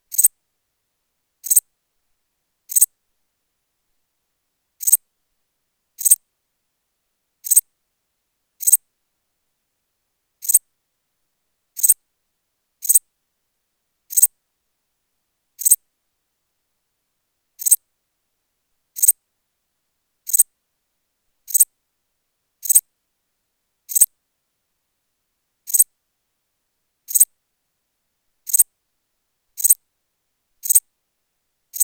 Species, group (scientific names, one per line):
Pholidoptera transsylvanica
Orthoptera